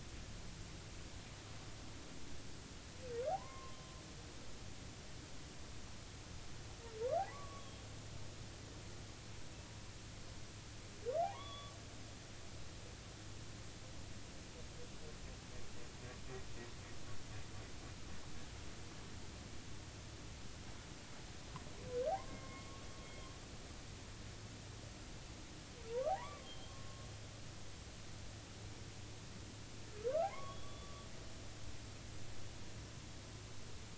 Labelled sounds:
3.3	3.8	humpback whale, 0.80 to 1.2 kHz
7.2	7.6	humpback whale, 0.80 to 1.2 kHz
11.2	11.7	humpback whale, 0.80 to 3.5 kHz
22.1	23.3	humpback whale, 0.80 to 3.3 kHz
26.1	27.1	humpback whale, 0.80 to 3.3 kHz
30.3	31.1	humpback whale, 0.96 to 3.5 kHz

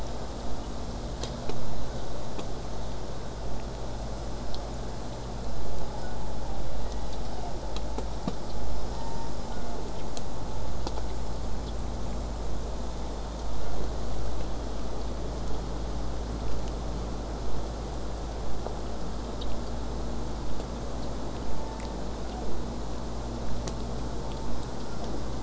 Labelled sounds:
6.0	7.7	killer whale, southern resident, J pod, 0.54 to 8.0 kHz
8.9	10.1	killer whale, southern resident, J pod, 1.3 to 7.3 kHz
12.8	13.8	killer whale, southern resident, J pod, 1.2 to 3.8 kHz
15.4	20.4	vessel noise, 0 to 8.0 kHz
21.4	22.6	killer whale, southern resident, J pod, 0.23 to 1.1 kHz
24.2	25.2	killer whale, southern resident, J pod, 0.19 to 1.5 kHz

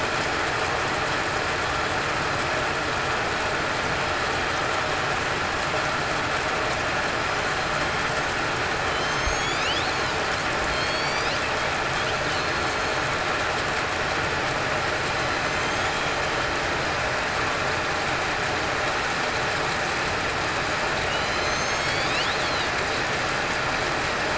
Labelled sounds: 9.0	9.6	killer whale, southern resident, 6.2 to 7.2 kHz
10.7	11.3	killer whale, southern resident, 3.1 to 6.9 kHz
12.3	12.8	killer whale, southern resident, 4.2 to 4.3 kHz
15.4	15.8	killer whale, southern resident, 6.1 to 6.6 kHz
21.1	22.1	killer whale, southern resident, 2.1 to 6.7 kHz

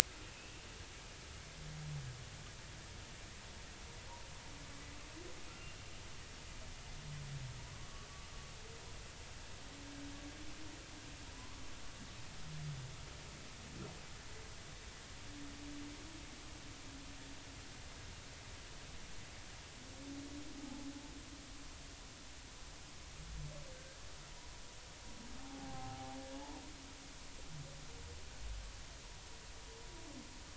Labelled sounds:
7.7	8.1	humpback whale, 1.0 to 1.2 kHz
11.3	11.6	humpback whale, 0.96 to 1.2 kHz
23.7	24.0	humpback whale, 1.5 to 1.7 kHz
25.4	26.2	humpback whale, 0.80 to 0.93 kHz

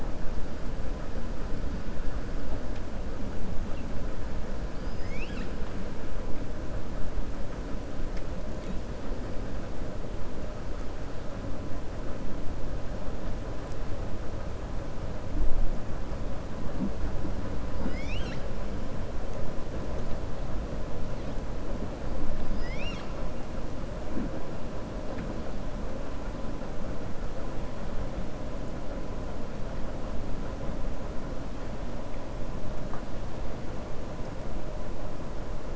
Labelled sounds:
4.7	5.5	killer whale, 1.5 to 6.7 kHz
17.7	18.5	killer whale, 0.88 to 7.8 kHz
22.4	23.1	killer whale, 1.3 to 6.7 kHz

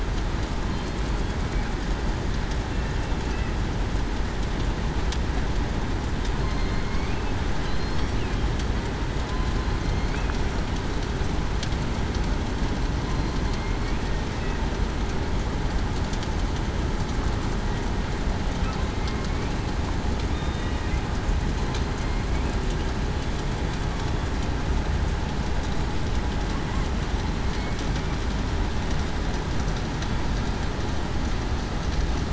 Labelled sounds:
6.8	7.2	killer whale, southern resident, 2.1 to 2.5 kHz
7.6	8.0	killer whale, southern resident, 4.0 to 4.3 kHz
20.3	20.7	killer whale, southern resident, 3.6 to 3.7 kHz

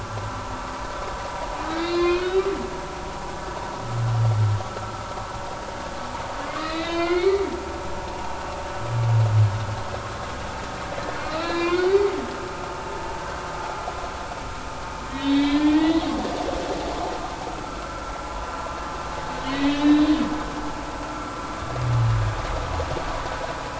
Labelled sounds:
1.7	2.4	humpback whale, 0.99 to 5.0 kHz
6.6	7.5	humpback whale, 0.99 to 4.5 kHz
11.2	12.0	humpback whale, 0.99 to 4.6 kHz
15.1	16.0	humpback whale, 1.7 to 4.6 kHz
17.6	18.1	humpback whale, 1.3 to 1.4 kHz
19.4	20.2	humpback whale, 1.9 to 4.0 kHz

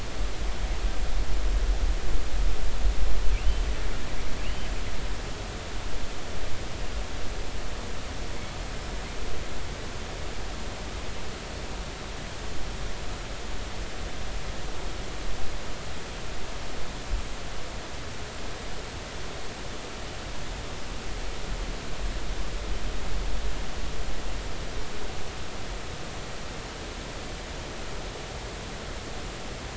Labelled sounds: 3.4	3.6	killer whale, northern resident, G clan, GI subclan, call N23i, 2.6 to 3.1 kHz
4.4	4.7	killer whale, northern resident, G clan, GI subclan, call N23i, 2.6 to 3.2 kHz

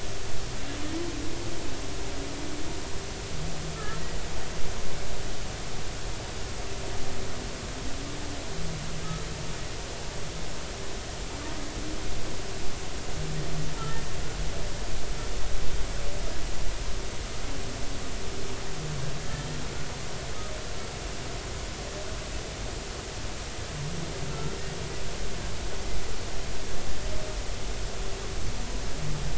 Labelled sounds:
3.7	4.0	humpback whale, 1.2 to 1.4 kHz
19.2	19.5	humpback whale, 1.6 to 1.9 kHz
24.3	24.6	humpback whale, 1.3 to 1.4 kHz

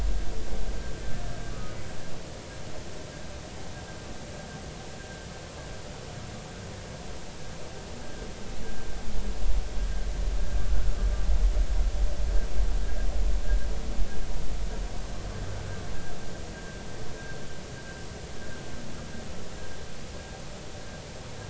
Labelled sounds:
1.5	1.8	humpback whale, 1.1 to 1.3 kHz
10.7	11.0	humpback whale, 1.3 to 1.5 kHz
16.5	16.8	humpback whale, 1.5 to 1.7 kHz

